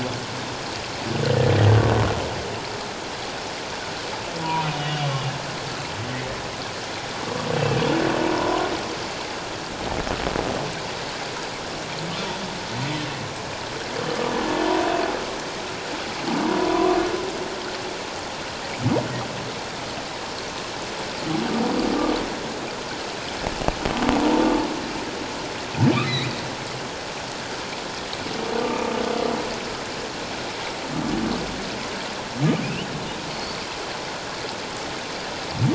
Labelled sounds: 4.4	5.1	humpback whale, 0.91 to 3.0 kHz
7.6	7.8	humpback whale, 2.5 to 2.7 kHz
8.4	8.7	humpback whale, 0.94 to 1.1 kHz
14.1	14.3	humpback whale, 1.1 to 1.3 kHz
16.6	16.9	humpback whale, 0.94 to 1.2 kHz
26.0	26.3	humpback whale, 1.8 to 4.2 kHz
32.6	32.9	humpback whale, 2.3 to 3.1 kHz
33.3	33.6	humpback whale, 4.3 to 4.6 kHz

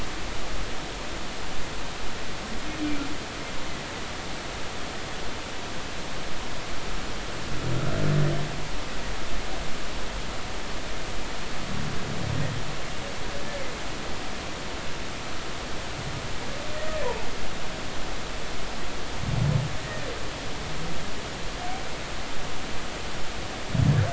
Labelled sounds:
19.8	20.1	humpback whale, 1.8 to 1.9 kHz

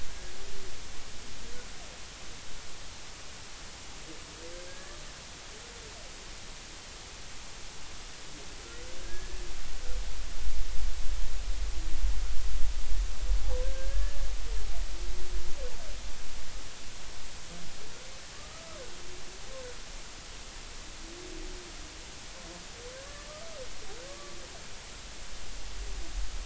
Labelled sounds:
4.7	5.0	humpback whale, 1.6 to 1.8 kHz
9.0	9.4	humpback whale, 1.6 to 1.8 kHz
13.6	14.2	humpback whale, 1.5 to 1.8 kHz
18.3	18.8	humpback whale, 1.1 to 1.3 kHz
23.0	23.3	humpback whale, 1.6 to 1.8 kHz
24.1	24.4	humpback whale, 1.1 to 1.2 kHz

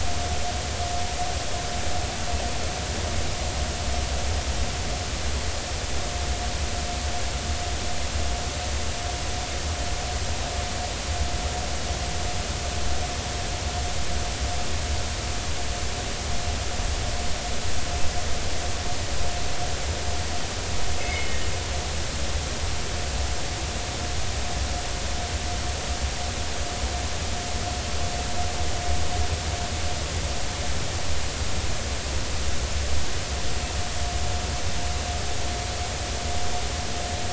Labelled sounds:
21.0	21.4	anchor noise, 2.0 to 2.2 kHz

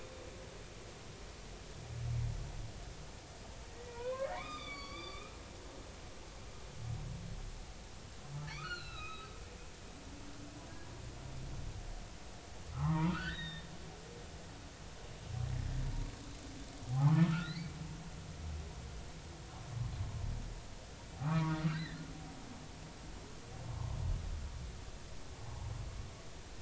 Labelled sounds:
3.7	5.4	humpback whale, 0.90 to 6.9 kHz
8.5	10.3	humpback whale, 1.1 to 4.4 kHz
12.7	13.7	humpback whale, 0.80 to 4.0 kHz
16.9	17.6	humpback whale, 0.80 to 4.2 kHz
21.2	22.0	humpback whale, 0.93 to 2.1 kHz
23.7	24.0	humpback whale, 0.93 to 1.1 kHz

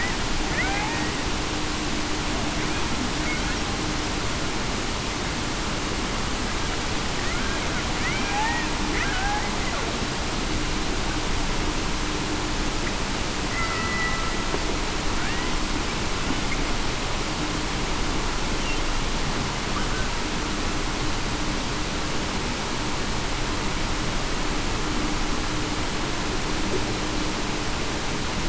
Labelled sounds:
0.6	1.0	killer whale, Bigg's (transient), 0.75 to 0.94 kHz
8.0	8.4	killer whale, Bigg's (transient), 1.9 to 2.5 kHz
13.5	14.2	killer whale, Bigg's (transient), 1.9 to 2.1 kHz

